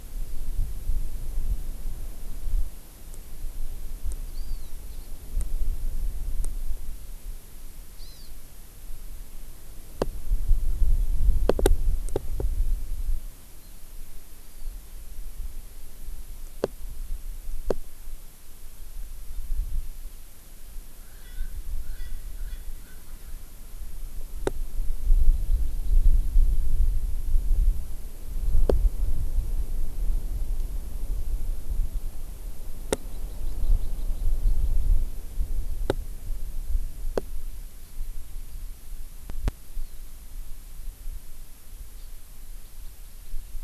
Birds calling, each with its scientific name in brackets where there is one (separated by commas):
Hawaii Amakihi (Chlorodrepanis virens), Erckel's Francolin (Pternistis erckelii)